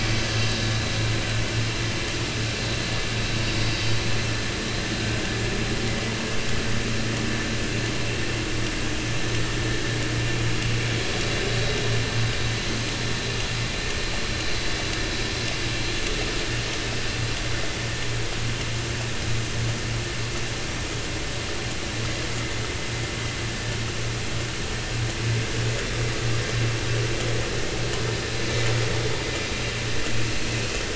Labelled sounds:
0.0	0.5	vessel noise, 6.0 to 6.2 kHz

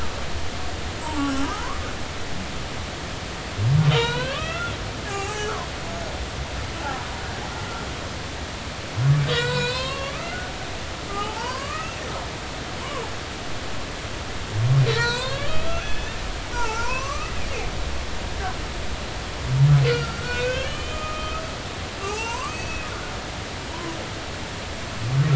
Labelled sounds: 0.6	1.7	humpback whale, 0.80 to 1.6 kHz
3.9	4.7	humpback whale, 0.86 to 4.3 kHz
5.1	5.5	humpback whale, 0.80 to 1.7 kHz
9.3	10.5	humpback whale, 0.93 to 4.6 kHz
11.1	11.9	humpback whale, 0.80 to 1.4 kHz
12.6	13.1	humpback whale, 0.80 to 2.8 kHz
14.9	16.2	humpback whale, 0.90 to 4.5 kHz
16.5	17.3	humpback whale, 0.83 to 2.8 kHz
19.9	21.4	humpback whale, 1.2 to 3.3 kHz
21.9	22.9	humpback whale, 0.80 to 6.6 kHz

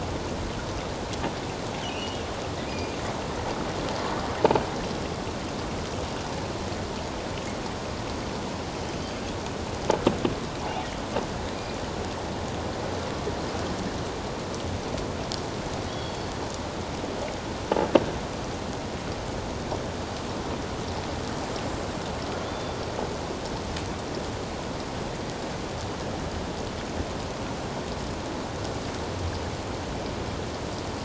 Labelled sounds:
1.8	3.0	killer whale, offshore, 2.3 to 5.0 kHz
15.9	16.2	killer whale, offshore, 3.2 to 3.4 kHz
22.4	22.8	killer whale, offshore, 3.3 to 3.6 kHz

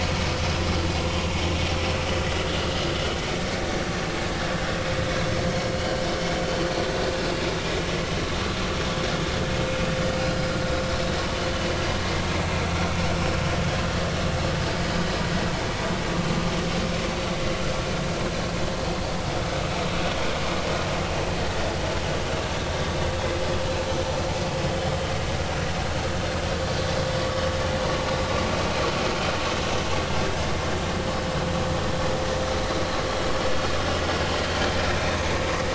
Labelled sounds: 4.5	4.8	vessel noise, 1.4 to 1.8 kHz
5.5	6.0	vessel noise, 4.2 to 4.6 kHz
13.1	13.4	vessel noise, 5.2 to 5.5 kHz

